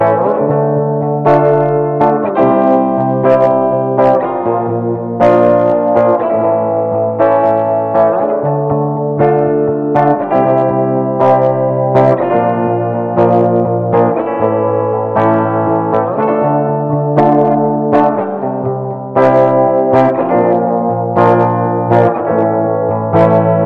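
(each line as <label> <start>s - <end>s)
An electric guitar plays a somber melody with slight crackling in the background. 0.0s - 23.7s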